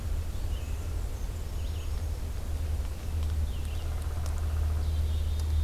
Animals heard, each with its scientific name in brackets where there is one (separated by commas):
Black-capped Chickadee (Poecile atricapillus), Downy Woodpecker (Dryobates pubescens), Black-and-white Warbler (Mniotilta varia), Red-eyed Vireo (Vireo olivaceus)